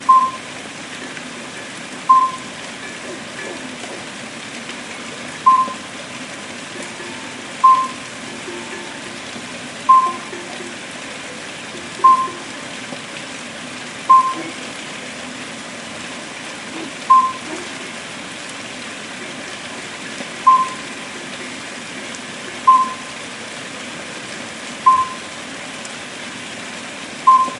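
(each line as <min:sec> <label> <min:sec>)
0:00.0 A clear, high-pitched staccato whistle, resembling electronic bleeps, occurs intermittently with noticeable gaps. 0:00.6
0:00.0 Soft rain falls steadily with the constant murmur of a small stream in the background. 0:27.6
0:00.6 A cowbell rings occasionally in the distance. 0:01.8
0:02.1 A clear, high-pitched staccato whistle, resembling electronic bleeps, occurs intermittently with noticeable gaps. 0:02.5
0:02.6 A cowbell rings occasionally in the distance. 0:05.3
0:05.4 A clear, high-pitched staccato whistle, resembling electronic bleeps, occurs intermittently with noticeable gaps. 0:05.9
0:06.7 A cowbell rings occasionally in the distance. 0:07.5
0:07.6 A clear, high-pitched staccato whistle, resembling electronic bleeps, occurs intermittently with noticeable gaps. 0:08.2
0:08.3 A cowbell rings occasionally in the distance. 0:09.7
0:09.8 A clear, high-pitched staccato whistle, resembling electronic bleeps, occurs intermittently with noticeable gaps. 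0:10.4
0:10.4 A cowbell rings occasionally in the distance. 0:11.2
0:11.8 A cowbell rings occasionally in the distance. 0:12.1
0:12.0 A clear, high-pitched staccato whistle, resembling electronic bleeps, occurs intermittently with noticeable gaps. 0:12.4
0:14.1 A clear, high-pitched staccato whistle, resembling electronic bleeps, occurs intermittently with noticeable gaps. 0:14.6
0:17.1 A clear, high-pitched staccato whistle, resembling electronic bleeps, occurs intermittently with noticeable gaps. 0:17.5
0:19.4 A cowbell rings occasionally in the distance. 0:20.4
0:20.5 A clear, high-pitched staccato whistle, resembling electronic bleeps, occurs intermittently with noticeable gaps. 0:20.9
0:21.1 A cowbell rings occasionally in the distance. 0:22.6
0:22.7 A clear, high-pitched staccato whistle, resembling electronic bleeps, occurs intermittently with noticeable gaps. 0:23.0
0:24.9 A clear, high-pitched staccato whistle, resembling electronic bleeps, occurs intermittently with noticeable gaps. 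0:25.2
0:27.3 A clear, high-pitched staccato whistle, similar to an electronic bleeping sound, occurring intermittently with noticeable gaps. 0:27.6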